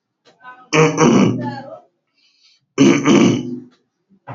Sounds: Throat clearing